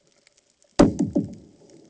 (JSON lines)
{"label": "anthrophony, bomb", "recorder": "HydroMoth"}